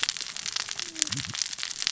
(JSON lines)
{"label": "biophony, cascading saw", "recorder": "SoundTrap 600 or HydroMoth"}